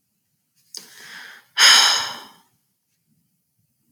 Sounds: Sigh